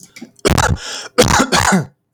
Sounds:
Cough